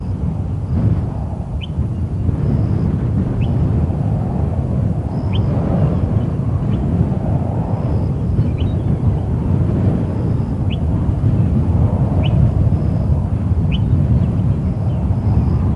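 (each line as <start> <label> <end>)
0.0 Wind sighs with a long, soft sound. 15.8
1.6 A bird chirps briefly in the distance. 1.8
3.3 A bird chirps briefly in the distance. 3.6
5.2 A bird chirps briefly in the distance. 5.4
6.6 A bird chirps briefly in the distance. 6.9
8.4 A bird chirps briefly in the distance. 8.6
10.6 A bird chirps briefly in the distance. 10.9
12.1 A bird chirps briefly in the distance. 12.3
13.7 A bird chirps briefly in the distance. 13.9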